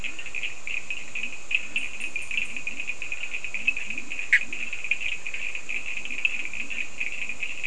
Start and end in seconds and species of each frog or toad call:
0.0	7.6	Leptodactylus latrans
0.0	7.6	Sphaenorhynchus surdus
4.1	4.7	Boana bischoffi
Atlantic Forest, Brazil, 4:15am

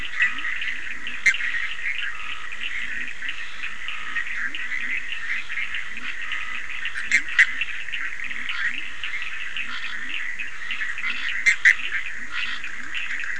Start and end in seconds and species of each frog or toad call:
0.0	13.3	Leptodactylus latrans
0.0	13.3	Sphaenorhynchus surdus
1.2	1.4	Boana bischoffi
7.0	7.5	Boana bischoffi
11.4	11.8	Boana bischoffi
Atlantic Forest, Brazil, 11:00pm

